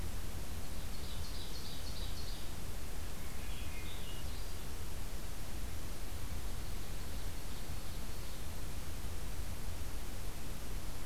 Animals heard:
Swainson's Thrush (Catharus ustulatus), Ovenbird (Seiurus aurocapilla)

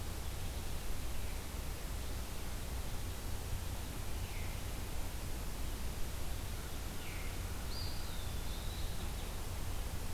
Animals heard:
Eastern Wood-Pewee (Contopus virens), Veery (Catharus fuscescens)

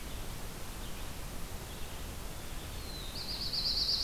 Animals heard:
Red-eyed Vireo (Vireo olivaceus), Black-throated Blue Warbler (Setophaga caerulescens)

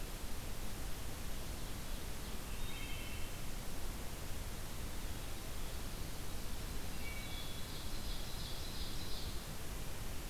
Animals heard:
Ovenbird (Seiurus aurocapilla), Wood Thrush (Hylocichla mustelina)

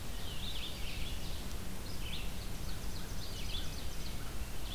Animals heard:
Red-eyed Vireo (Vireo olivaceus), Ovenbird (Seiurus aurocapilla), Hermit Thrush (Catharus guttatus)

